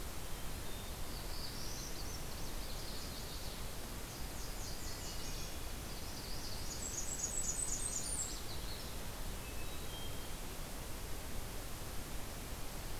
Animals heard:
Hermit Thrush (Catharus guttatus), Magnolia Warbler (Setophaga magnolia), Nashville Warbler (Leiothlypis ruficapilla), Black-throated Blue Warbler (Setophaga caerulescens), Ovenbird (Seiurus aurocapilla), Blackburnian Warbler (Setophaga fusca), Northern Parula (Setophaga americana)

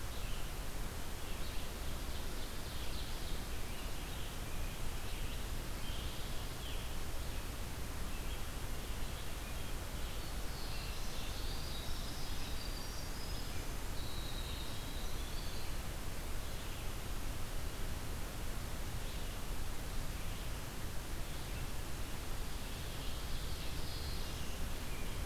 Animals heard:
Red-eyed Vireo (Vireo olivaceus), Ovenbird (Seiurus aurocapilla), Winter Wren (Troglodytes hiemalis), Black-throated Blue Warbler (Setophaga caerulescens)

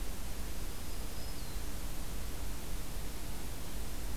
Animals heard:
Black-throated Green Warbler (Setophaga virens)

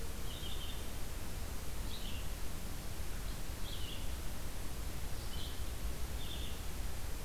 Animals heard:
Red-eyed Vireo (Vireo olivaceus)

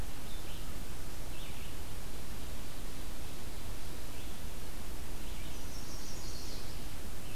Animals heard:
Chestnut-sided Warbler (Setophaga pensylvanica), Red-eyed Vireo (Vireo olivaceus)

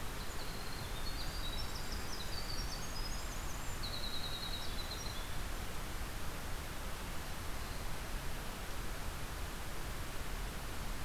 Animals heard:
Winter Wren (Troglodytes hiemalis)

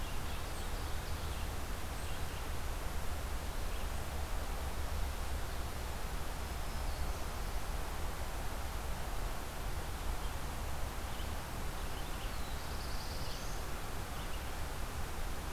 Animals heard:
Black-throated Green Warbler (Setophaga virens), Red-eyed Vireo (Vireo olivaceus), Ovenbird (Seiurus aurocapilla), Black-throated Blue Warbler (Setophaga caerulescens)

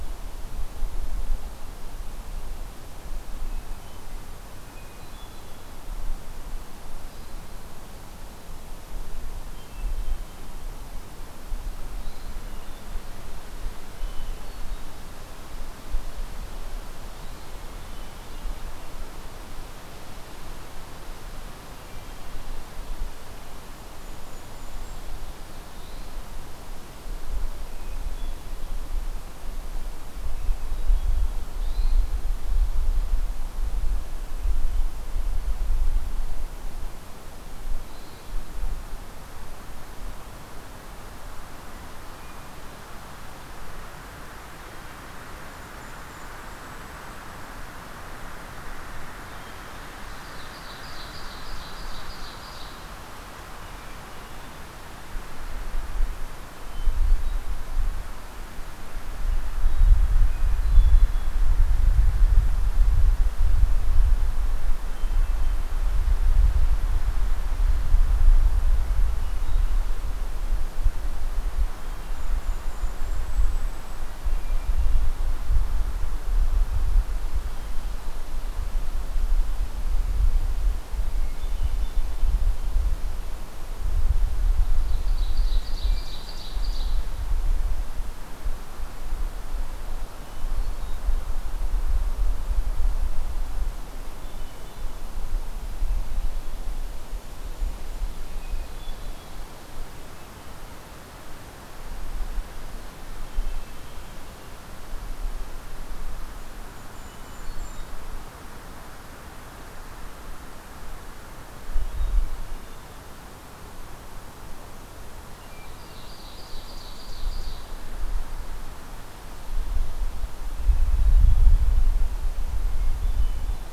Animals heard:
Hermit Thrush (Catharus guttatus), Golden-crowned Kinglet (Regulus satrapa), Ovenbird (Seiurus aurocapilla)

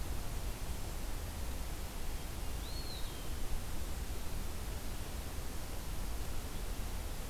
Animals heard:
Eastern Wood-Pewee (Contopus virens)

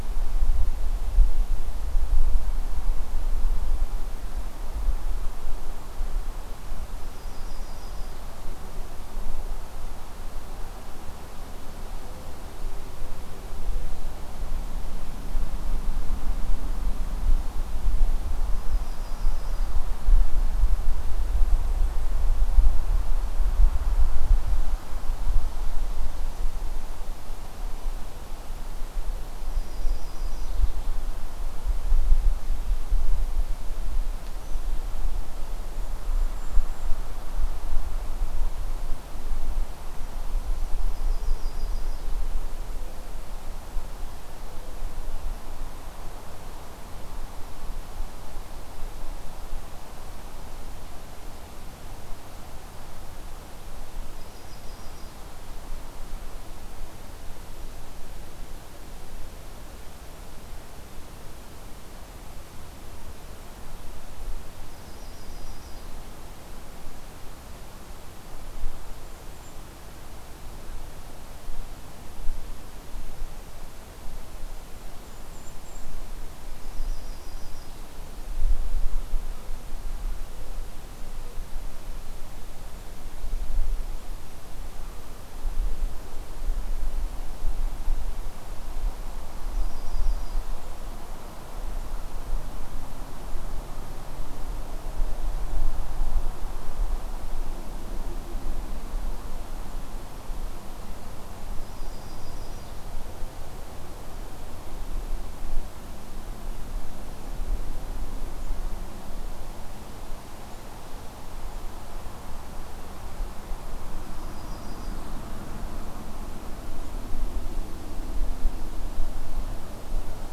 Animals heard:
Mourning Dove (Zenaida macroura), Yellow-rumped Warbler (Setophaga coronata), Golden-crowned Kinglet (Regulus satrapa)

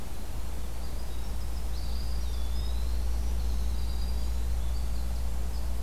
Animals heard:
Winter Wren (Troglodytes hiemalis), Eastern Wood-Pewee (Contopus virens)

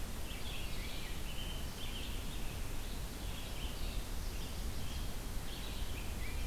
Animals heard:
Rose-breasted Grosbeak (Pheucticus ludovicianus), Red-eyed Vireo (Vireo olivaceus)

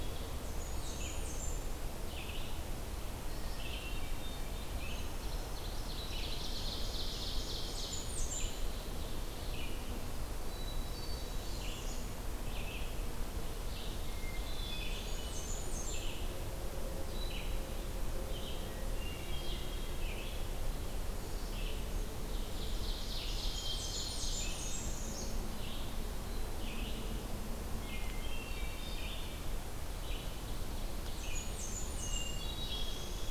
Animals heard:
Hermit Thrush (Catharus guttatus), Ovenbird (Seiurus aurocapilla), Northern Parula (Setophaga americana), Blackburnian Warbler (Setophaga fusca), Red-eyed Vireo (Vireo olivaceus), Brown Creeper (Certhia americana)

